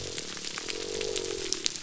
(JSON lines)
{"label": "biophony", "recorder": "SoundTrap 300"}